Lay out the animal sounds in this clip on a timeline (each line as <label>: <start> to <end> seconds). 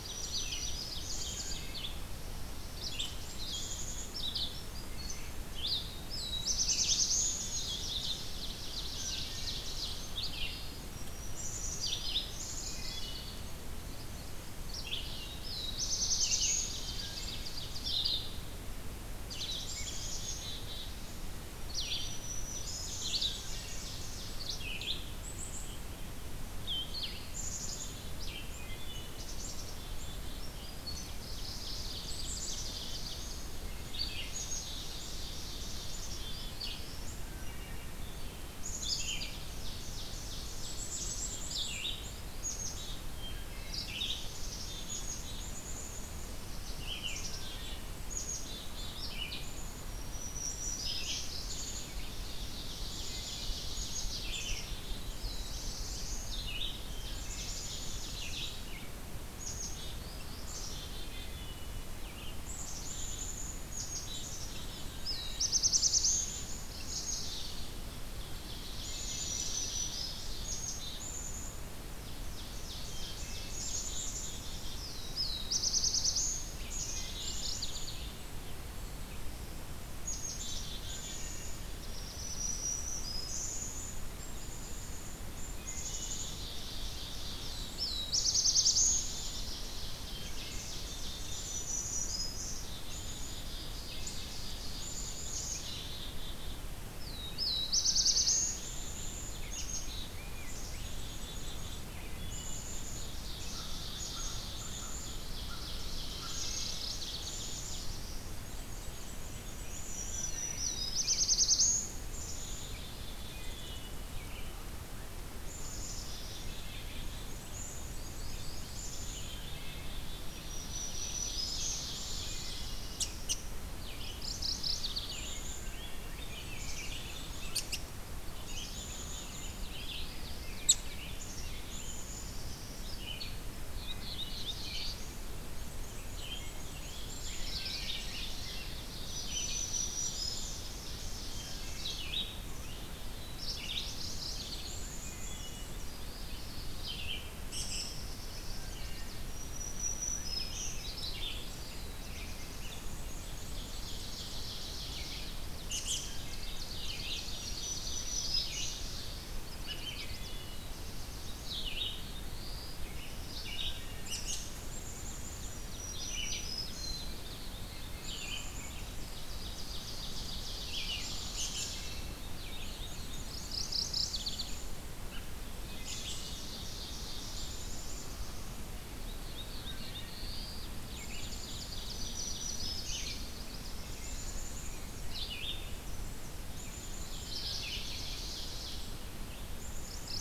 Black-throated Green Warbler (Setophaga virens): 0.0 to 1.7 seconds
Ovenbird (Seiurus aurocapilla): 0.0 to 1.9 seconds
Red-eyed Vireo (Vireo olivaceus): 0.0 to 42.0 seconds
Wood Thrush (Hylocichla mustelina): 1.2 to 1.9 seconds
Black-capped Chickadee (Poecile atricapillus): 2.8 to 4.1 seconds
Black-capped Chickadee (Poecile atricapillus): 4.5 to 5.5 seconds
Black-throated Blue Warbler (Setophaga caerulescens): 5.8 to 7.5 seconds
Ovenbird (Seiurus aurocapilla): 7.4 to 10.1 seconds
Wood Thrush (Hylocichla mustelina): 8.9 to 9.7 seconds
Black-throated Green Warbler (Setophaga virens): 10.7 to 12.6 seconds
Black-capped Chickadee (Poecile atricapillus): 11.3 to 13.2 seconds
Wood Thrush (Hylocichla mustelina): 12.7 to 13.5 seconds
Black-throated Blue Warbler (Setophaga caerulescens): 15.3 to 16.7 seconds
Ovenbird (Seiurus aurocapilla): 16.1 to 18.1 seconds
Wood Thrush (Hylocichla mustelina): 16.9 to 17.6 seconds
Black-capped Chickadee (Poecile atricapillus): 19.2 to 21.1 seconds
Black-throated Green Warbler (Setophaga virens): 21.5 to 23.0 seconds
Black-capped Chickadee (Poecile atricapillus): 22.5 to 24.6 seconds
Wood Thrush (Hylocichla mustelina): 23.3 to 23.9 seconds
Black-capped Chickadee (Poecile atricapillus): 25.0 to 25.8 seconds
Black-capped Chickadee (Poecile atricapillus): 27.3 to 28.3 seconds
Wood Thrush (Hylocichla mustelina): 28.6 to 29.2 seconds
Black-capped Chickadee (Poecile atricapillus): 29.2 to 31.2 seconds
Ovenbird (Seiurus aurocapilla): 30.7 to 32.1 seconds
Black-capped Chickadee (Poecile atricapillus): 32.0 to 33.4 seconds
Black-throated Blue Warbler (Setophaga caerulescens): 32.3 to 33.6 seconds
Black-capped Chickadee (Poecile atricapillus): 34.1 to 35.0 seconds
Ovenbird (Seiurus aurocapilla): 34.4 to 36.2 seconds
Black-capped Chickadee (Poecile atricapillus): 35.8 to 36.9 seconds
Wood Thrush (Hylocichla mustelina): 37.2 to 37.9 seconds
Black-capped Chickadee (Poecile atricapillus): 38.5 to 39.6 seconds
Ovenbird (Seiurus aurocapilla): 39.1 to 41.3 seconds
Black-capped Chickadee (Poecile atricapillus): 40.6 to 43.1 seconds
Wood Thrush (Hylocichla mustelina): 43.1 to 43.9 seconds
Red-eyed Vireo (Vireo olivaceus): 43.8 to 62.4 seconds
Black-capped Chickadee (Poecile atricapillus): 43.9 to 46.2 seconds
Black-capped Chickadee (Poecile atricapillus): 46.8 to 47.8 seconds
Wood Thrush (Hylocichla mustelina): 47.3 to 48.0 seconds
Black-capped Chickadee (Poecile atricapillus): 48.1 to 49.2 seconds
Black-throated Green Warbler (Setophaga virens): 49.5 to 51.3 seconds
Black-capped Chickadee (Poecile atricapillus): 51.3 to 52.2 seconds
Ovenbird (Seiurus aurocapilla): 52.1 to 54.1 seconds
Black-capped Chickadee (Poecile atricapillus): 52.9 to 55.1 seconds
Wood Thrush (Hylocichla mustelina): 53.0 to 53.7 seconds
Black-throated Blue Warbler (Setophaga caerulescens): 54.9 to 56.3 seconds
Black-capped Chickadee (Poecile atricapillus): 56.8 to 58.0 seconds
Wood Thrush (Hylocichla mustelina): 56.9 to 57.6 seconds
Black-capped Chickadee (Poecile atricapillus): 59.2 to 60.1 seconds
Black-capped Chickadee (Poecile atricapillus): 60.5 to 61.5 seconds
Wood Thrush (Hylocichla mustelina): 61.1 to 61.9 seconds
Black-capped Chickadee (Poecile atricapillus): 62.4 to 64.9 seconds
Wood Thrush (Hylocichla mustelina): 64.9 to 65.6 seconds
Black-throated Blue Warbler (Setophaga caerulescens): 64.9 to 66.5 seconds
Black-capped Chickadee (Poecile atricapillus): 65.6 to 67.9 seconds
Ovenbird (Seiurus aurocapilla): 68.0 to 70.4 seconds
Wood Thrush (Hylocichla mustelina): 68.8 to 69.5 seconds
Black-capped Chickadee (Poecile atricapillus): 68.8 to 70.1 seconds
Black-throated Green Warbler (Setophaga virens): 69.0 to 70.4 seconds
Black-capped Chickadee (Poecile atricapillus): 70.3 to 71.7 seconds
Ovenbird (Seiurus aurocapilla): 72.1 to 74.3 seconds
Wood Thrush (Hylocichla mustelina): 72.9 to 73.8 seconds
Black-capped Chickadee (Poecile atricapillus): 73.5 to 74.8 seconds
Black-throated Blue Warbler (Setophaga caerulescens): 74.8 to 76.5 seconds
Black-capped Chickadee (Poecile atricapillus): 76.5 to 78.3 seconds
Wood Thrush (Hylocichla mustelina): 76.6 to 77.6 seconds
Mourning Warbler (Geothlypis philadelphia): 76.8 to 78.1 seconds
Black-capped Chickadee (Poecile atricapillus): 79.9 to 81.8 seconds
Wood Thrush (Hylocichla mustelina): 80.8 to 81.5 seconds
Black-throated Blue Warbler (Setophaga caerulescens): 81.8 to 83.1 seconds
Black-throated Green Warbler (Setophaga virens): 82.1 to 83.6 seconds
Black-capped Chickadee (Poecile atricapillus): 83.2 to 86.6 seconds
Wood Thrush (Hylocichla mustelina): 85.5 to 86.2 seconds
Ovenbird (Seiurus aurocapilla): 86.0 to 88.1 seconds
Black-throated Blue Warbler (Setophaga caerulescens): 87.2 to 89.3 seconds
Ovenbird (Seiurus aurocapilla): 88.8 to 91.8 seconds
Black-throated Green Warbler (Setophaga virens): 91.2 to 92.6 seconds
Black-capped Chickadee (Poecile atricapillus): 91.5 to 94.4 seconds
Ovenbird (Seiurus aurocapilla): 93.5 to 95.6 seconds
Black-capped Chickadee (Poecile atricapillus): 94.8 to 96.6 seconds
Black-throated Blue Warbler (Setophaga caerulescens): 96.9 to 98.9 seconds
Wood Thrush (Hylocichla mustelina): 97.8 to 98.8 seconds
Black-capped Chickadee (Poecile atricapillus): 98.6 to 101.8 seconds
Black-and-white Warbler (Mniotilta varia): 100.4 to 101.8 seconds
Wood Thrush (Hylocichla mustelina): 101.9 to 102.6 seconds
Black-capped Chickadee (Poecile atricapillus): 102.3 to 105.5 seconds
Ovenbird (Seiurus aurocapilla): 103.0 to 108.3 seconds
American Crow (Corvus brachyrhynchos): 103.4 to 106.5 seconds
Mourning Warbler (Geothlypis philadelphia): 106.2 to 107.1 seconds
Black-capped Chickadee (Poecile atricapillus): 107.2 to 108.3 seconds
Black-and-white Warbler (Mniotilta varia): 108.4 to 109.9 seconds
Black-throated Green Warbler (Setophaga virens): 109.8 to 111.3 seconds
Wood Thrush (Hylocichla mustelina): 109.9 to 110.7 seconds
Black-throated Blue Warbler (Setophaga caerulescens): 110.1 to 112.0 seconds
Red-eyed Vireo (Vireo olivaceus): 110.9 to 162.1 seconds
Black-capped Chickadee (Poecile atricapillus): 112.1 to 113.8 seconds
Wood Thrush (Hylocichla mustelina): 113.2 to 114.0 seconds
Black-capped Chickadee (Poecile atricapillus): 115.3 to 120.2 seconds
Black-and-white Warbler (Mniotilta varia): 117.1 to 119.1 seconds
Ovenbird (Seiurus aurocapilla): 120.0 to 123.1 seconds
Black-throated Green Warbler (Setophaga virens): 120.2 to 121.9 seconds
Black-capped Chickadee (Poecile atricapillus): 121.9 to 122.9 seconds
Wood Thrush (Hylocichla mustelina): 122.0 to 122.9 seconds
Mourning Warbler (Geothlypis philadelphia): 123.9 to 125.2 seconds
Black-capped Chickadee (Poecile atricapillus): 124.9 to 126.2 seconds
Wood Thrush (Hylocichla mustelina): 125.4 to 126.2 seconds
Rose-breasted Grosbeak (Pheucticus ludovicianus): 126.0 to 127.7 seconds
Black-and-white Warbler (Mniotilta varia): 126.1 to 127.8 seconds
Black-capped Chickadee (Poecile atricapillus): 128.3 to 129.7 seconds
Rose-breasted Grosbeak (Pheucticus ludovicianus): 128.6 to 132.1 seconds
Black-capped Chickadee (Poecile atricapillus): 131.1 to 133.0 seconds
Black-throated Blue Warbler (Setophaga caerulescens): 133.6 to 135.3 seconds
Black-and-white Warbler (Mniotilta varia): 135.5 to 137.0 seconds
Rose-breasted Grosbeak (Pheucticus ludovicianus): 136.1 to 138.8 seconds
Ovenbird (Seiurus aurocapilla): 137.0 to 142.1 seconds
Black-capped Chickadee (Poecile atricapillus): 137.0 to 138.1 seconds
Black-throated Green Warbler (Setophaga virens): 138.9 to 140.4 seconds
Wood Thrush (Hylocichla mustelina): 141.4 to 142.0 seconds
Black-capped Chickadee (Poecile atricapillus): 142.4 to 143.3 seconds
Black-throated Blue Warbler (Setophaga caerulescens): 142.9 to 144.4 seconds
Mourning Warbler (Geothlypis philadelphia): 143.7 to 144.8 seconds
Black-and-white Warbler (Mniotilta varia): 144.3 to 145.8 seconds
Wood Thrush (Hylocichla mustelina): 144.9 to 145.8 seconds
Black-throated Blue Warbler (Setophaga caerulescens): 145.8 to 147.0 seconds
American Robin (Turdus migratorius): 147.5 to 147.9 seconds
Chestnut-sided Warbler (Setophaga pensylvanica): 148.5 to 150.8 seconds
Wood Thrush (Hylocichla mustelina): 148.6 to 149.4 seconds
Black-throated Blue Warbler (Setophaga caerulescens): 151.4 to 152.9 seconds
Black-and-white Warbler (Mniotilta varia): 152.6 to 154.4 seconds
Ovenbird (Seiurus aurocapilla): 153.2 to 155.5 seconds
Wood Thrush (Hylocichla mustelina): 156.0 to 156.6 seconds
Ovenbird (Seiurus aurocapilla): 156.2 to 159.1 seconds
Black-throated Green Warbler (Setophaga virens): 157.4 to 158.7 seconds
Chestnut-sided Warbler (Setophaga pensylvanica): 159.5 to 160.4 seconds
Wood Thrush (Hylocichla mustelina): 160.0 to 160.6 seconds
Black-throated Blue Warbler (Setophaga caerulescens): 160.3 to 162.8 seconds
Wood Thrush (Hylocichla mustelina): 163.6 to 164.2 seconds
American Robin (Turdus migratorius): 164.0 to 164.4 seconds
Black-capped Chickadee (Poecile atricapillus): 164.7 to 166.0 seconds
Black-throated Green Warbler (Setophaga virens): 165.6 to 167.0 seconds
Black-capped Chickadee (Poecile atricapillus): 166.7 to 167.2 seconds
Black-throated Blue Warbler (Setophaga caerulescens): 167.3 to 168.5 seconds
Black-capped Chickadee (Poecile atricapillus): 168.0 to 169.1 seconds
Ovenbird (Seiurus aurocapilla): 169.1 to 171.3 seconds
Red-eyed Vireo (Vireo olivaceus): 170.7 to 190.2 seconds
Black-capped Chickadee (Poecile atricapillus): 170.8 to 172.3 seconds
Wood Thrush (Hylocichla mustelina): 171.5 to 172.2 seconds
Black-throated Blue Warbler (Setophaga caerulescens): 172.2 to 173.7 seconds
Black-and-white Warbler (Mniotilta varia): 172.6 to 174.1 seconds
Mourning Warbler (Geothlypis philadelphia): 173.1 to 174.5 seconds
Black-capped Chickadee (Poecile atricapillus): 173.8 to 174.9 seconds
Wood Thrush (Hylocichla mustelina): 175.6 to 176.3 seconds
Ovenbird (Seiurus aurocapilla): 175.8 to 177.8 seconds
Black-capped Chickadee (Poecile atricapillus): 177.2 to 178.8 seconds
Black-throated Blue Warbler (Setophaga caerulescens): 179.1 to 180.7 seconds
Wood Thrush (Hylocichla mustelina): 179.5 to 180.3 seconds
Ovenbird (Seiurus aurocapilla): 180.8 to 183.9 seconds
Black-capped Chickadee (Poecile atricapillus): 181.0 to 182.3 seconds
Black-throated Green Warbler (Setophaga virens): 182.0 to 183.1 seconds
Black-capped Chickadee (Poecile atricapillus): 184.0 to 185.2 seconds
Black-capped Chickadee (Poecile atricapillus): 186.3 to 187.5 seconds
Ovenbird (Seiurus aurocapilla): 187.1 to 188.8 seconds
Mourning Warbler (Geothlypis philadelphia): 189.4 to 190.2 seconds